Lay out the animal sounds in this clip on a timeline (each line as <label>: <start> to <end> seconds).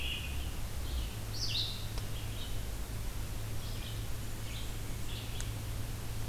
Red-eyed Vireo (Vireo olivaceus): 0.0 to 6.3 seconds
Blackburnian Warbler (Setophaga fusca): 3.9 to 5.4 seconds